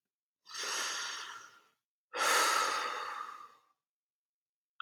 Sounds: Sigh